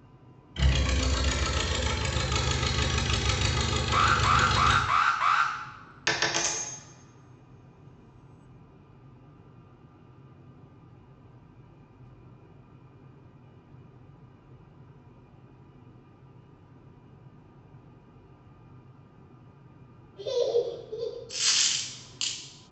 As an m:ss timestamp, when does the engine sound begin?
0:01